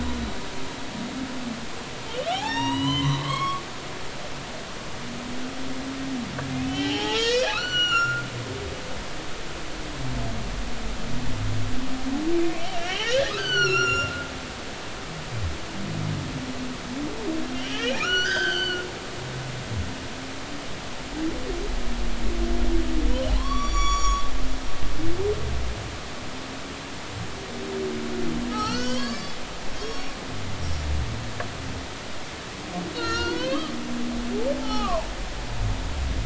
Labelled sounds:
2.3	3.6	humpback whale, 0.80 to 7.0 kHz
4.2	4.6	humpback whale, 2.0 to 2.3 kHz
6.6	8.2	humpback whale, 0.80 to 7.0 kHz
12.6	14.2	humpback whale, 1.2 to 7.1 kHz
17.5	18.8	humpback whale, 1.2 to 6.5 kHz
23.3	24.2	humpback whale, 0.96 to 8.0 kHz
28.5	29.3	humpback whale, 0.96 to 6.8 kHz
29.7	30.1	humpback whale, 3.1 to 5.6 kHz
32.9	33.7	humpback whale, 0.96 to 5.8 kHz
34.6	35.1	humpback whale, 0.80 to 3.1 kHz

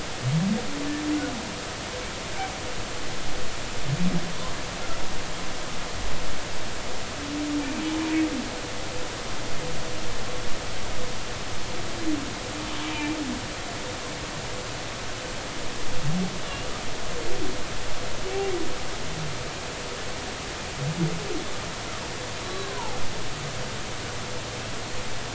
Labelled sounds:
12.9	13.2	humpback whale, 2.3 to 2.5 kHz
22.4	23.0	humpback whale, 0.80 to 4.0 kHz

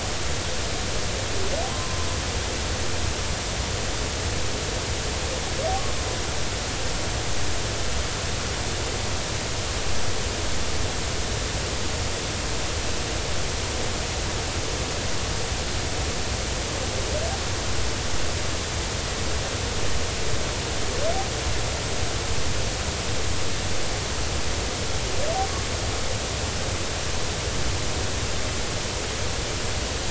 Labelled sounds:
1.7	2.1	humpback whale, 0.93 to 1.2 kHz

